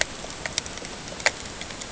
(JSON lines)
{"label": "ambient", "recorder": "HydroMoth"}